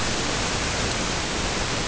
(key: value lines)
label: ambient
recorder: HydroMoth